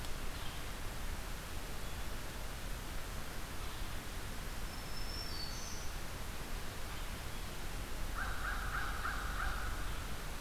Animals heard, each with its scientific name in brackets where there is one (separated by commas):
American Crow (Corvus brachyrhynchos), Black-throated Green Warbler (Setophaga virens), Red-eyed Vireo (Vireo olivaceus)